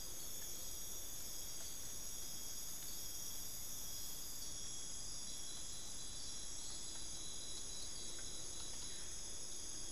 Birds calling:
Buff-throated Woodcreeper (Xiphorhynchus guttatus)

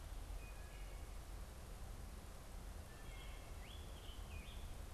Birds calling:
Scarlet Tanager (Piranga olivacea), Wood Thrush (Hylocichla mustelina)

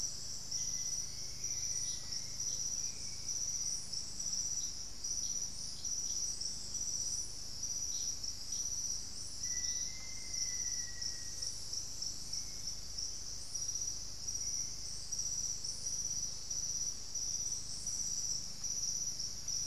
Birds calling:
Hauxwell's Thrush (Turdus hauxwelli), Black-faced Antthrush (Formicarius analis)

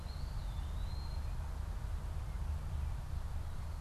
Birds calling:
Eastern Wood-Pewee (Contopus virens), American Goldfinch (Spinus tristis)

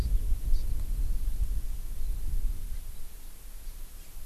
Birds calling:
Hawaii Amakihi (Chlorodrepanis virens)

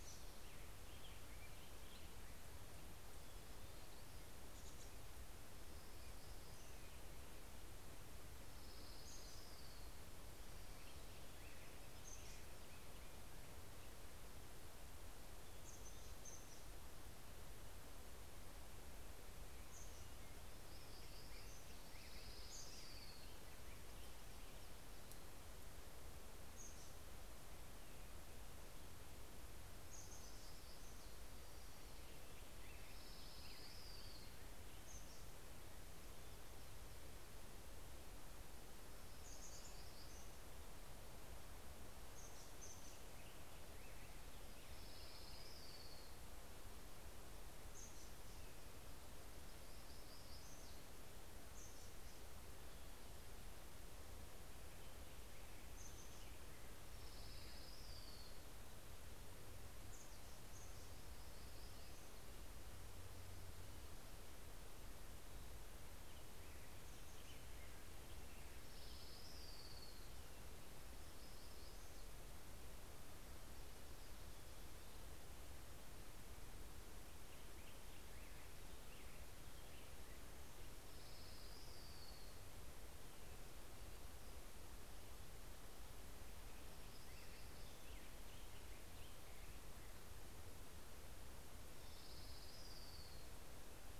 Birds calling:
Hermit Warbler (Setophaga occidentalis), Orange-crowned Warbler (Leiothlypis celata), Chestnut-backed Chickadee (Poecile rufescens), Black-headed Grosbeak (Pheucticus melanocephalus)

